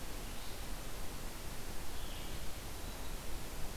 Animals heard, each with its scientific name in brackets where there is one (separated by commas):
Red-eyed Vireo (Vireo olivaceus)